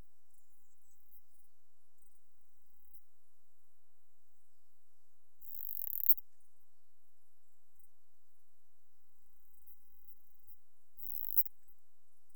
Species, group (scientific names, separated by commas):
Poecilimon obesus, Orthoptera